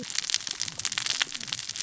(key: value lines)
label: biophony, cascading saw
recorder: SoundTrap 600 or HydroMoth